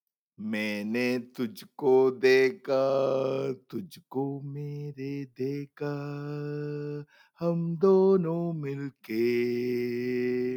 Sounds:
Sigh